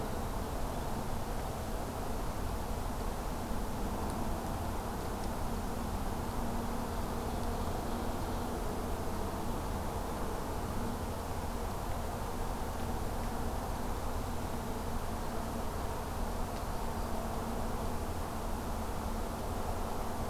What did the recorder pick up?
Ovenbird